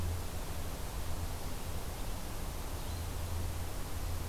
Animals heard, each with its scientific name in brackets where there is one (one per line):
Red-eyed Vireo (Vireo olivaceus)